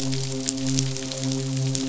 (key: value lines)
label: biophony, midshipman
recorder: SoundTrap 500